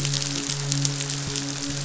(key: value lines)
label: biophony, midshipman
recorder: SoundTrap 500